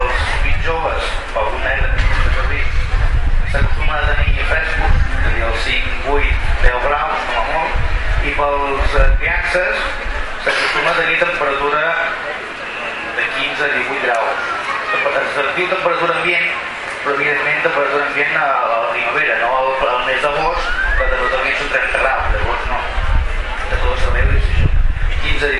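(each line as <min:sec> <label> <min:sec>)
0:00.0 Overlapping conversations with occasional wind interference in an outdoor environment. 0:12.2
0:00.0 A single male voice speaking in a steady, amplified tone, cutting through background noise with slightly muffled but good quality. 0:25.6
0:13.0 Overlapping conversations with occasional wind interference in an outdoor environment. 0:25.6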